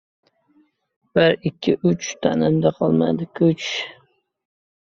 {"expert_labels": [{"quality": "no cough present", "dyspnea": false, "wheezing": false, "stridor": false, "choking": false, "congestion": false, "nothing": false}]}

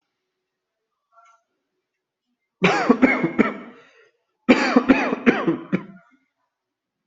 {"expert_labels": [{"quality": "ok", "cough_type": "dry", "dyspnea": true, "wheezing": false, "stridor": false, "choking": false, "congestion": false, "nothing": false, "diagnosis": "COVID-19", "severity": "mild"}], "age": 35, "gender": "male", "respiratory_condition": false, "fever_muscle_pain": false, "status": "healthy"}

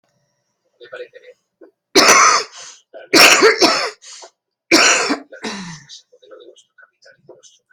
{"expert_labels": [{"quality": "good", "cough_type": "wet", "dyspnea": false, "wheezing": false, "stridor": false, "choking": false, "congestion": false, "nothing": true, "diagnosis": "upper respiratory tract infection", "severity": "mild"}], "age": 57, "gender": "female", "respiratory_condition": true, "fever_muscle_pain": false, "status": "COVID-19"}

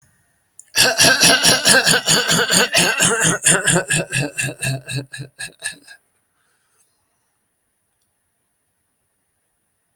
{"expert_labels": [{"quality": "good", "cough_type": "dry", "dyspnea": false, "wheezing": false, "stridor": false, "choking": false, "congestion": false, "nothing": true, "diagnosis": "healthy cough", "severity": "pseudocough/healthy cough"}], "age": 31, "gender": "male", "respiratory_condition": false, "fever_muscle_pain": false, "status": "healthy"}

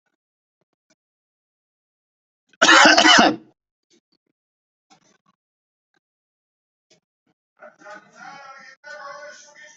{"expert_labels": [{"quality": "good", "cough_type": "unknown", "dyspnea": false, "wheezing": false, "stridor": false, "choking": false, "congestion": false, "nothing": true, "diagnosis": "healthy cough", "severity": "pseudocough/healthy cough"}], "age": 31, "gender": "female", "respiratory_condition": false, "fever_muscle_pain": false, "status": "healthy"}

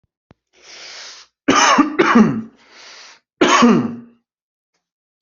{"expert_labels": [{"quality": "good", "cough_type": "dry", "dyspnea": false, "wheezing": false, "stridor": false, "choking": false, "congestion": false, "nothing": true, "diagnosis": "upper respiratory tract infection", "severity": "mild"}], "age": 31, "gender": "male", "respiratory_condition": false, "fever_muscle_pain": true, "status": "symptomatic"}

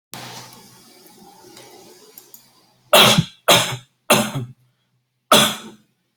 {"expert_labels": [{"quality": "poor", "cough_type": "unknown", "dyspnea": false, "wheezing": false, "stridor": false, "choking": false, "congestion": false, "nothing": true, "diagnosis": "lower respiratory tract infection", "severity": "mild"}], "age": 29, "gender": "male", "respiratory_condition": false, "fever_muscle_pain": true, "status": "symptomatic"}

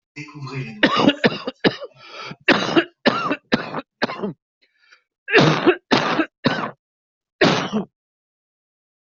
{"expert_labels": [{"quality": "good", "cough_type": "wet", "dyspnea": false, "wheezing": false, "stridor": false, "choking": false, "congestion": false, "nothing": true, "diagnosis": "obstructive lung disease", "severity": "severe"}], "age": 56, "gender": "male", "respiratory_condition": true, "fever_muscle_pain": false, "status": "symptomatic"}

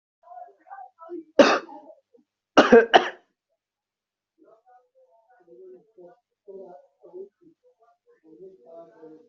{"expert_labels": [{"quality": "good", "cough_type": "unknown", "dyspnea": false, "wheezing": false, "stridor": false, "choking": false, "congestion": false, "nothing": true, "diagnosis": "upper respiratory tract infection", "severity": "mild"}], "age": 20, "gender": "male", "respiratory_condition": true, "fever_muscle_pain": false, "status": "COVID-19"}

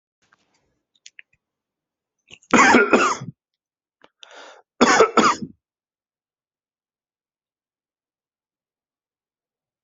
{"expert_labels": [{"quality": "good", "cough_type": "wet", "dyspnea": false, "wheezing": false, "stridor": false, "choking": false, "congestion": false, "nothing": true, "diagnosis": "lower respiratory tract infection", "severity": "mild"}], "age": 31, "gender": "male", "respiratory_condition": false, "fever_muscle_pain": true, "status": "symptomatic"}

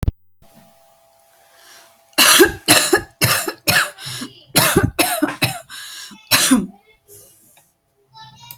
{"expert_labels": [{"quality": "ok", "cough_type": "wet", "dyspnea": false, "wheezing": false, "stridor": false, "choking": false, "congestion": false, "nothing": true, "diagnosis": "lower respiratory tract infection", "severity": "mild"}], "age": 41, "gender": "female", "respiratory_condition": false, "fever_muscle_pain": true, "status": "symptomatic"}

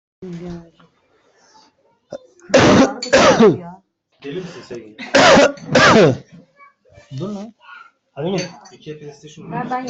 {"expert_labels": [{"quality": "good", "cough_type": "unknown", "dyspnea": false, "wheezing": false, "stridor": false, "choking": false, "congestion": false, "nothing": true, "diagnosis": "lower respiratory tract infection", "severity": "mild"}], "age": 38, "gender": "male", "respiratory_condition": false, "fever_muscle_pain": false, "status": "COVID-19"}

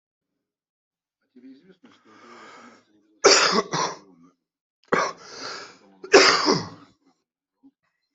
{"expert_labels": [{"quality": "good", "cough_type": "unknown", "dyspnea": false, "wheezing": false, "stridor": false, "choking": false, "congestion": false, "nothing": true, "diagnosis": "upper respiratory tract infection", "severity": "mild"}], "gender": "female", "respiratory_condition": false, "fever_muscle_pain": false, "status": "COVID-19"}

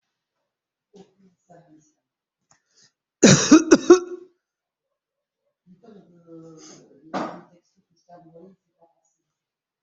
{"expert_labels": [{"quality": "good", "cough_type": "dry", "dyspnea": false, "wheezing": false, "stridor": false, "choking": false, "congestion": false, "nothing": true, "diagnosis": "healthy cough", "severity": "pseudocough/healthy cough"}], "age": 53, "gender": "male", "respiratory_condition": false, "fever_muscle_pain": true, "status": "COVID-19"}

